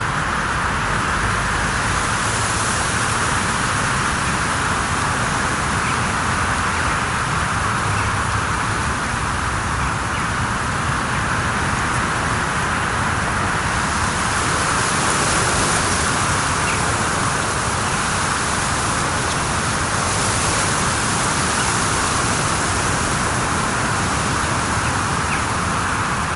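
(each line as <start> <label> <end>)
0.0 Strong wind with heavy rain. 26.4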